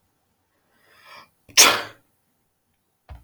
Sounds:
Sneeze